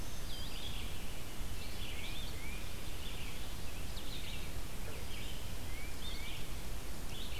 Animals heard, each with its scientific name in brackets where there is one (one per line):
Blue-headed Vireo (Vireo solitarius)
Red-eyed Vireo (Vireo olivaceus)
Tufted Titmouse (Baeolophus bicolor)
Black-throated Green Warbler (Setophaga virens)